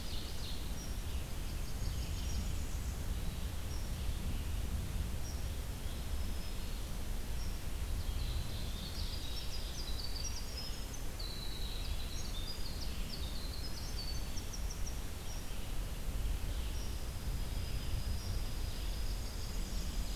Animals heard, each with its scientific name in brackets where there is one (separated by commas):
Winter Wren (Troglodytes hiemalis), Blackburnian Warbler (Setophaga fusca), Red-eyed Vireo (Vireo olivaceus), Dark-eyed Junco (Junco hyemalis), Black-throated Green Warbler (Setophaga virens), Ovenbird (Seiurus aurocapilla)